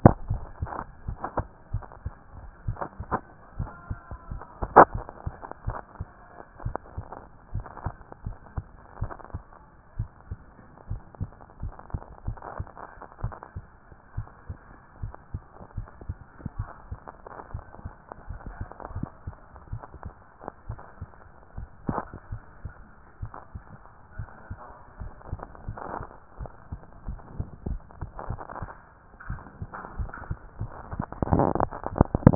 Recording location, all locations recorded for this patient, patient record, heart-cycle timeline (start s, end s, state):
mitral valve (MV)
aortic valve (AV)+pulmonary valve (PV)+tricuspid valve (TV)+mitral valve (MV)
#Age: Child
#Sex: Female
#Height: 124.0 cm
#Weight: 25.1 kg
#Pregnancy status: False
#Murmur: Absent
#Murmur locations: nan
#Most audible location: nan
#Systolic murmur timing: nan
#Systolic murmur shape: nan
#Systolic murmur grading: nan
#Systolic murmur pitch: nan
#Systolic murmur quality: nan
#Diastolic murmur timing: nan
#Diastolic murmur shape: nan
#Diastolic murmur grading: nan
#Diastolic murmur pitch: nan
#Diastolic murmur quality: nan
#Outcome: Abnormal
#Campaign: 2014 screening campaign
0.00	10.77	unannotated
10.77	10.90	diastole
10.90	11.02	S1
11.02	11.20	systole
11.20	11.30	S2
11.30	11.62	diastole
11.62	11.74	S1
11.74	11.92	systole
11.92	12.00	S2
12.00	12.26	diastole
12.26	12.38	S1
12.38	12.58	systole
12.58	12.68	S2
12.68	13.22	diastole
13.22	13.34	S1
13.34	13.56	systole
13.56	13.64	S2
13.64	14.16	diastole
14.16	14.28	S1
14.28	14.48	systole
14.48	14.58	S2
14.58	15.02	diastole
15.02	15.14	S1
15.14	15.32	systole
15.32	15.42	S2
15.42	15.76	diastole
15.76	15.88	S1
15.88	16.06	systole
16.06	16.16	S2
16.16	16.58	diastole
16.58	16.68	S1
16.68	16.90	systole
16.90	17.00	S2
17.00	32.35	unannotated